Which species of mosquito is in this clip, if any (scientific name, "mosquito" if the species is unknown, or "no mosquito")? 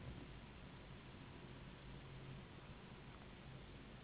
Anopheles gambiae s.s.